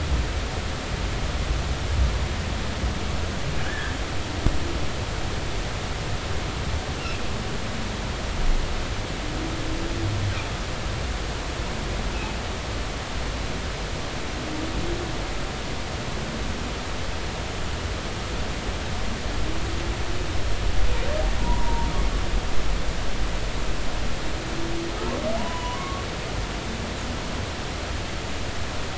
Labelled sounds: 3.6	3.9	humpback whale, 1.4 to 1.8 kHz
21.4	21.9	humpback whale, 0.86 to 1.1 kHz
25.4	26.0	humpback whale, 0.80 to 3.0 kHz

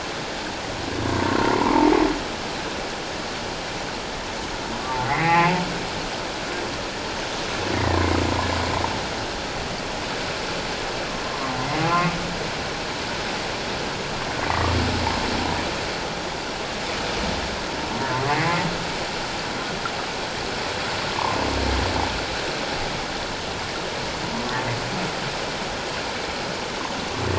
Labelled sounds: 1.4	1.8	humpback whale, 0.88 to 1.2 kHz
5.1	5.6	humpback whale, 1.8 to 2.8 kHz
14.5	14.8	humpback whale, 1.1 to 1.2 kHz
18.3	18.6	humpback whale, 1.8 to 2.2 kHz

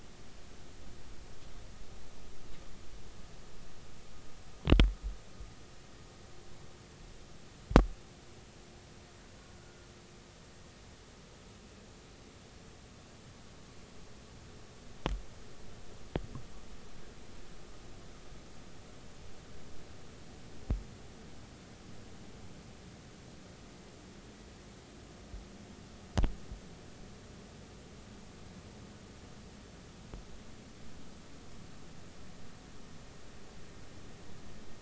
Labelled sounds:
9.6	9.9	killer whale, Bigg's (transient), 1.3 to 1.5 kHz

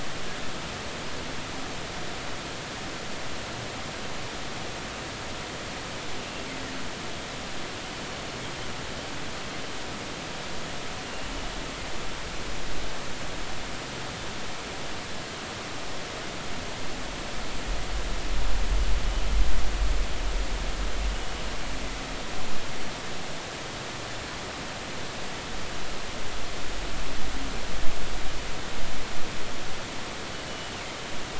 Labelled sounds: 11.0	11.3	killer whale, northern resident, 2.75 to 2.85 kHz
30.5	30.7	killer whale, northern resident, G clan, GG subclan, call N23ii, 2.8 to 3.1 kHz

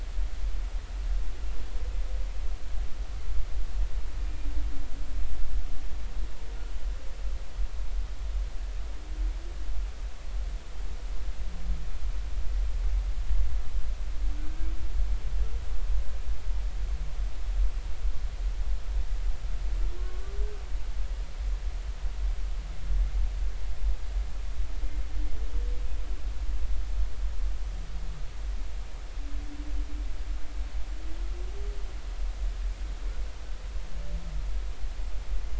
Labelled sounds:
4.2	4.5	humpback whale, 2.3 to 2.5 kHz
14.4	14.7	humpback whale, 1.5 to 1.6 kHz
20.0	20.4	humpback whale, 1.0 to 1.2 kHz

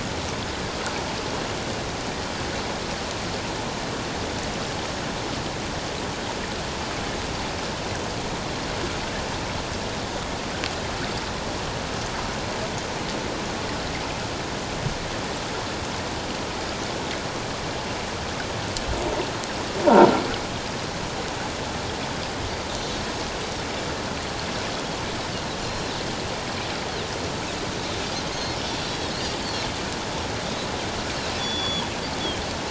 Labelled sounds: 28.3	29.2	Pacific white-sided dolphin, 3.8 to 4.5 kHz
31.4	31.9	Pacific white-sided dolphin, 3.1 to 5.9 kHz

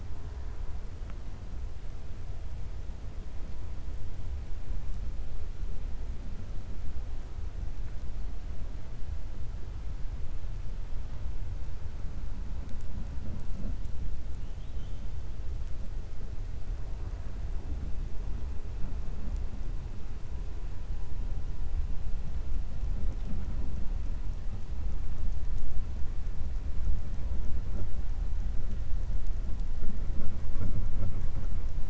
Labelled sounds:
14.4	15.1	killer whale, 2.8 to 3.9 kHz

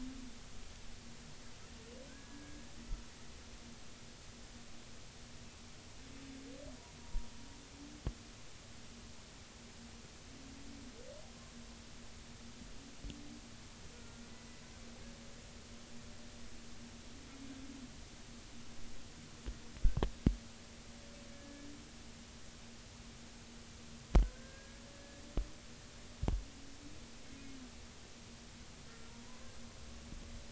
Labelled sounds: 2.1	2.6	humpback whale, 1.5 to 1.7 kHz
7.0	7.3	humpback whale, 0.90 to 0.99 kHz
13.9	14.2	humpback whale, 1.3 to 1.5 kHz
21.3	21.7	humpback whale, 1.6 to 1.8 kHz
24.3	25.2	humpback whale, 1.5 to 1.8 kHz

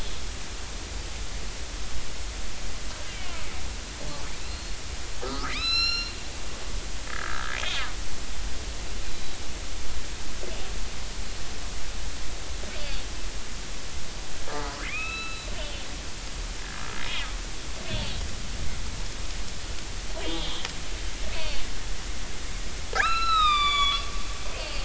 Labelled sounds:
3.1	3.4	killer whale, northern resident, 2.7 to 3.2 kHz
4.3	6.1	killer whale, northern resident, 0.83 to 5.6 kHz
7.1	7.6	killer whale, northern resident, 1.2 to 1.8 kHz
9.1	9.4	killer whale, northern resident, 3.8 to 4.0 kHz
14.6	15.5	killer whale, northern resident, 1.1 to 4.0 kHz
20.2	20.7	killer whale, northern resident, 2.7 to 3.9 kHz
22.9	24.8	killer whale, northern resident, 1.0 to 8.0 kHz

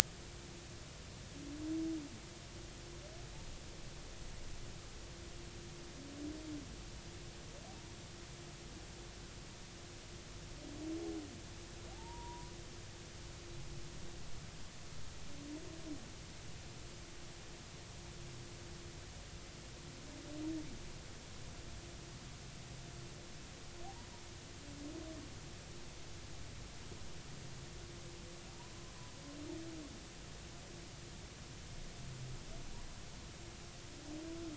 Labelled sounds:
11.9	12.5	humpback whale, 0.80 to 1.0 kHz
28.6	28.9	humpback whale, 0.90 to 1.2 kHz

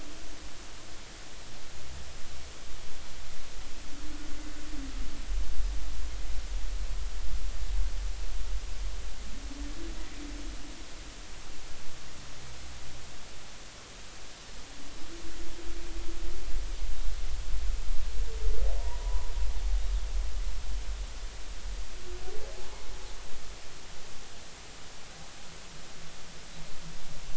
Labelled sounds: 19.0	19.3	humpback whale, 0.93 to 1.1 kHz

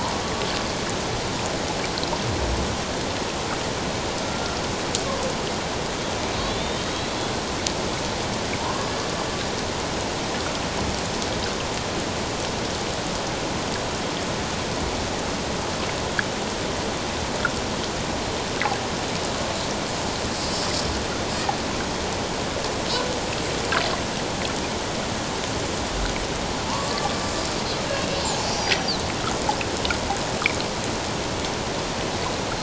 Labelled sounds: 4.2	4.6	killer whale, Bigg's (transient), 1.3 to 1.4 kHz
6.4	7.3	killer whale, Bigg's (transient), 3.3 to 4.2 kHz
26.6	27.0	killer whale, Bigg's (transient), 0.84 to 1.2 kHz
28.5	28.9	killer whale, Bigg's (transient), 5.7 to 5.9 kHz

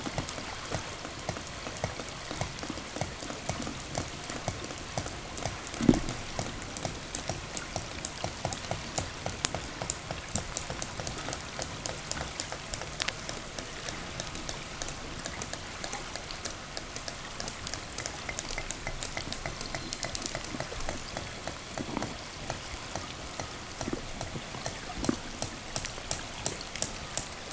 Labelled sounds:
19.3	20.4	killer whale, southern resident, 0 to 8.0 kHz
23.2	27.5	killer whale, 0.98 to 8.0 kHz

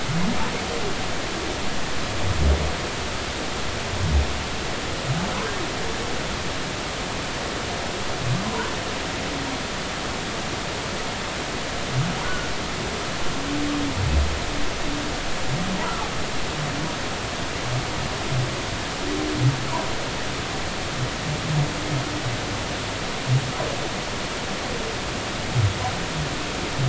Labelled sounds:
12.2	12.5	humpback whale, 1.4 to 1.5 kHz

